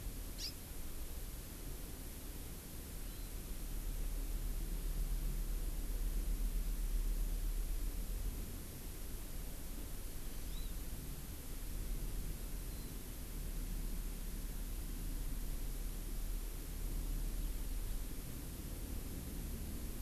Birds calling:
Hawaii Amakihi (Chlorodrepanis virens)

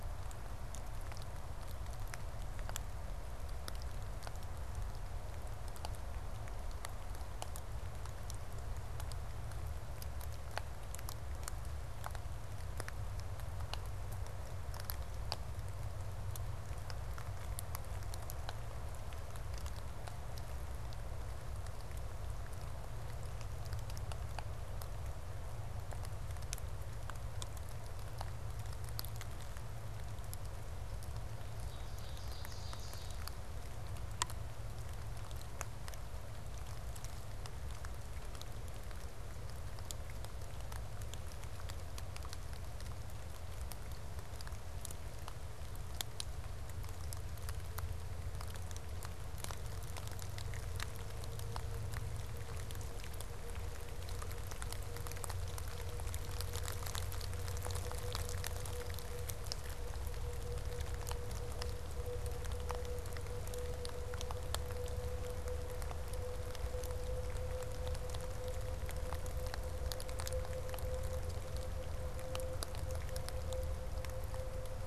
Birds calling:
Ovenbird (Seiurus aurocapilla)

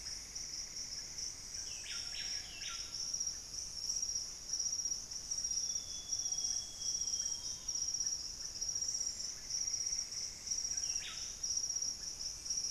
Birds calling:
Buff-breasted Wren (Cantorchilus leucotis), Screaming Piha (Lipaugus vociferans), Amazonian Grosbeak (Cyanoloxia rothschildii), unidentified bird, Russet-backed Oropendola (Psarocolius angustifrons)

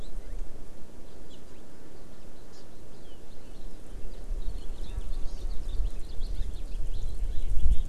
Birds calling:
Hawaii Amakihi (Chlorodrepanis virens), House Finch (Haemorhous mexicanus)

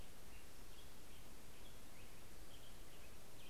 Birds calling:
Black-headed Grosbeak (Pheucticus melanocephalus)

